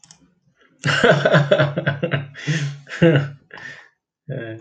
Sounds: Laughter